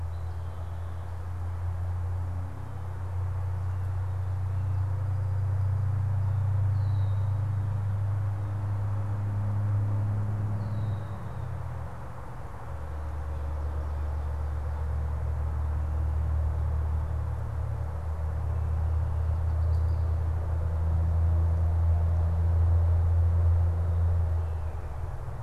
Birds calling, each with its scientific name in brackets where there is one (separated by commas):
Red-winged Blackbird (Agelaius phoeniceus), Blue Jay (Cyanocitta cristata)